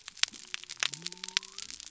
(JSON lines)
{"label": "biophony", "recorder": "SoundTrap 300"}